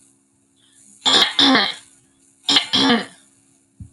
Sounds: Throat clearing